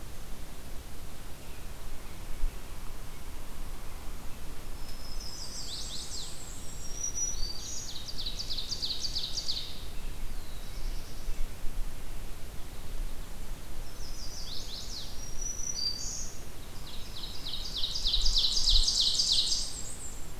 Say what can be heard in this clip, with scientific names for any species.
Setophaga virens, Mniotilta varia, Setophaga pensylvanica, Seiurus aurocapilla, Setophaga caerulescens